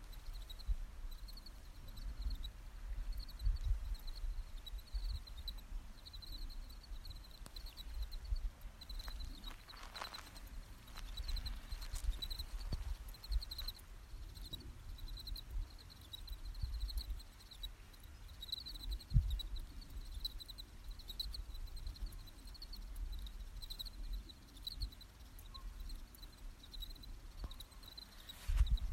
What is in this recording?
Gryllus pennsylvanicus, an orthopteran